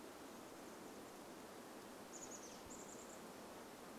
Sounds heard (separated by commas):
Chestnut-backed Chickadee call